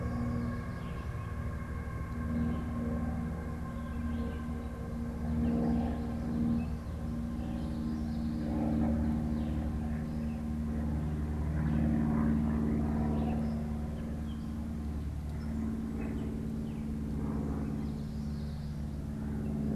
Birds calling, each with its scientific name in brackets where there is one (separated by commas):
Common Yellowthroat (Geothlypis trichas), Red-eyed Vireo (Vireo olivaceus), Gray Catbird (Dumetella carolinensis)